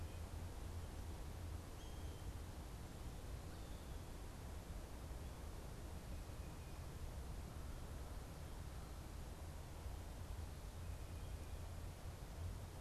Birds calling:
Blue Jay (Cyanocitta cristata)

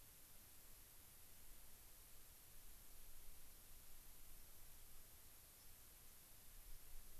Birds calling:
White-crowned Sparrow (Zonotrichia leucophrys)

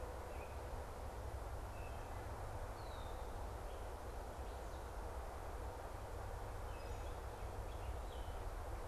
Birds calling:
Red-winged Blackbird (Agelaius phoeniceus), unidentified bird

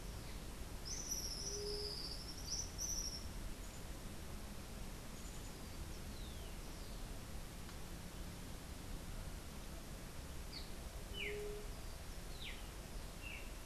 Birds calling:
Streaked Saltator (Saltator striatipectus), White-tipped Dove (Leptotila verreauxi), Tropical Kingbird (Tyrannus melancholicus)

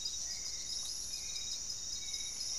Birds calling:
Paradise Tanager (Tangara chilensis), Hauxwell's Thrush (Turdus hauxwelli)

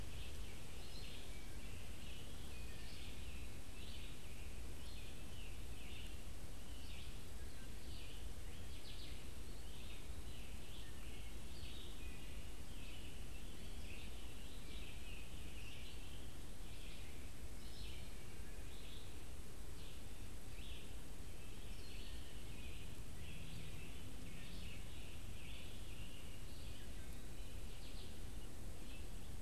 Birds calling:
Wood Thrush (Hylocichla mustelina), Red-eyed Vireo (Vireo olivaceus), Scarlet Tanager (Piranga olivacea)

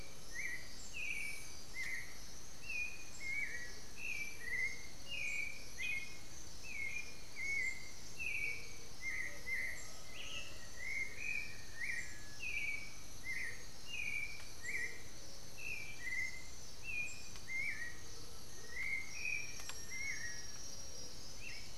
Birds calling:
Black-faced Antthrush (Formicarius analis), Undulated Tinamou (Crypturellus undulatus), Black-billed Thrush (Turdus ignobilis), Elegant Woodcreeper (Xiphorhynchus elegans)

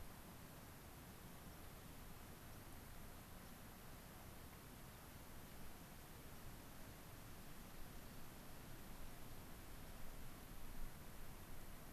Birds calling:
White-crowned Sparrow (Zonotrichia leucophrys)

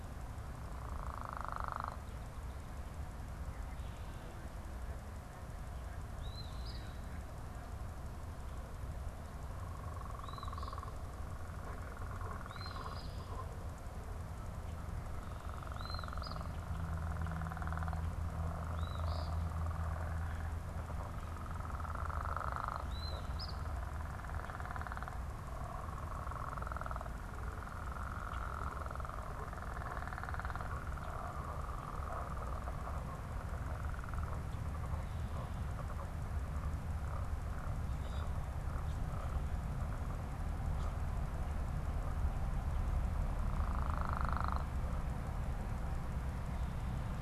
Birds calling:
Red-winged Blackbird (Agelaius phoeniceus), Eastern Phoebe (Sayornis phoebe)

